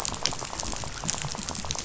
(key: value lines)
label: biophony, rattle
recorder: SoundTrap 500